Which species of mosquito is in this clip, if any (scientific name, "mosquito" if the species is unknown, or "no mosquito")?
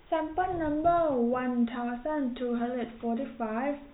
no mosquito